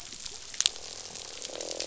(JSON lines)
{"label": "biophony, croak", "recorder": "SoundTrap 500"}